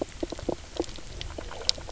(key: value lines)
label: biophony, knock croak
recorder: SoundTrap 300